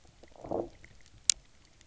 {"label": "biophony, low growl", "recorder": "SoundTrap 300"}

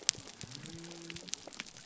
{"label": "biophony", "recorder": "SoundTrap 300"}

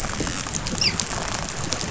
{"label": "biophony, dolphin", "recorder": "SoundTrap 500"}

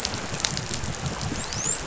{"label": "biophony, dolphin", "recorder": "SoundTrap 500"}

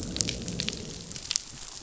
{"label": "biophony, growl", "recorder": "SoundTrap 500"}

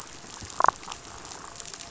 {"label": "biophony, damselfish", "recorder": "SoundTrap 500"}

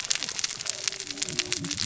{"label": "biophony, cascading saw", "recorder": "SoundTrap 600 or HydroMoth"}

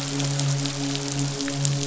{"label": "biophony, midshipman", "recorder": "SoundTrap 500"}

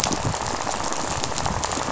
{"label": "biophony, rattle", "recorder": "SoundTrap 500"}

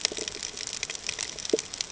{"label": "ambient", "recorder": "HydroMoth"}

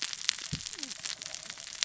{"label": "biophony, cascading saw", "recorder": "SoundTrap 600 or HydroMoth"}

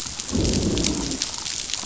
{"label": "biophony, growl", "recorder": "SoundTrap 500"}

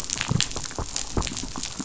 {"label": "biophony, chatter", "recorder": "SoundTrap 500"}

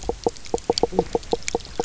{"label": "biophony, knock croak", "recorder": "SoundTrap 300"}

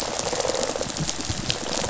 {"label": "biophony", "recorder": "SoundTrap 500"}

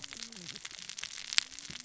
{"label": "biophony, cascading saw", "recorder": "SoundTrap 600 or HydroMoth"}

